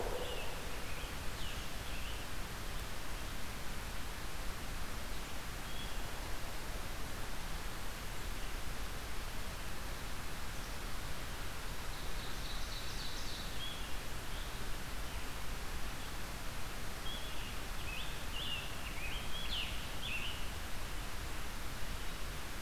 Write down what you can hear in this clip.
Scarlet Tanager, Ovenbird